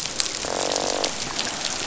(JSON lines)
{"label": "biophony, croak", "recorder": "SoundTrap 500"}